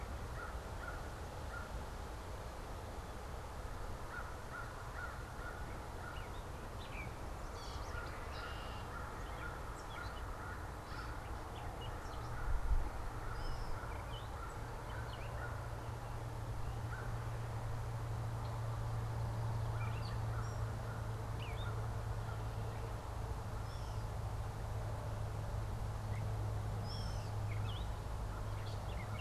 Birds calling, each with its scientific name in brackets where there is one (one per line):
American Crow (Corvus brachyrhynchos)
Gray Catbird (Dumetella carolinensis)
Red-winged Blackbird (Agelaius phoeniceus)